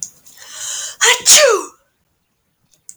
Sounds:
Sneeze